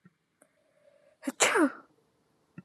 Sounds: Sneeze